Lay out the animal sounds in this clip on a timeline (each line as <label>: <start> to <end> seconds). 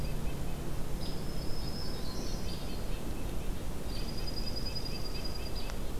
Red-breasted Nuthatch (Sitta canadensis): 0.0 to 1.2 seconds
Hairy Woodpecker (Dryobates villosus): 0.0 to 6.0 seconds
Black-throated Green Warbler (Setophaga virens): 1.0 to 2.5 seconds
Red-breasted Nuthatch (Sitta canadensis): 1.9 to 6.0 seconds
Yellow-rumped Warbler (Setophaga coronata): 1.9 to 3.0 seconds
Dark-eyed Junco (Junco hyemalis): 3.8 to 5.8 seconds